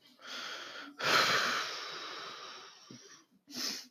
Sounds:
Sigh